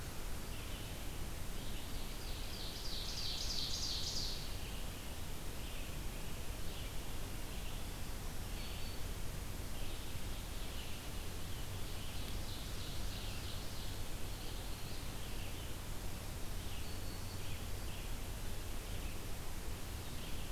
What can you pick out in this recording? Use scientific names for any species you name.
Vireo olivaceus, Seiurus aurocapilla, Setophaga virens